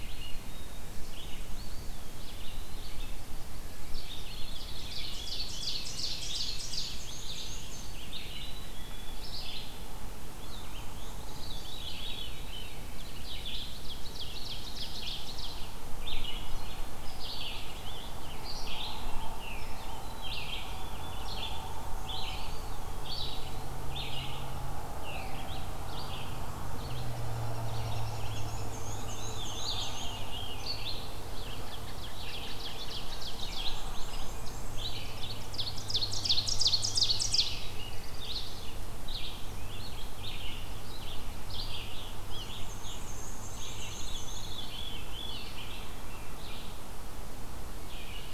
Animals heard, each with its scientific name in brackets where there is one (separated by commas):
Black-capped Chickadee (Poecile atricapillus), Black-throated Blue Warbler (Setophaga caerulescens), Veery (Catharus fuscescens), Scarlet Tanager (Piranga olivacea), Black-and-white Warbler (Mniotilta varia), Ovenbird (Seiurus aurocapilla), American Robin (Turdus migratorius), Eastern Wood-Pewee (Contopus virens), Red-eyed Vireo (Vireo olivaceus)